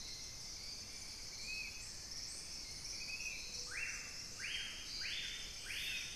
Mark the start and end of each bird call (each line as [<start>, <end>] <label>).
[0.00, 3.16] Hauxwell's Thrush (Turdus hauxwelli)
[0.00, 6.16] Spot-winged Antshrike (Pygiptila stellaris)
[3.36, 6.16] Screaming Piha (Lipaugus vociferans)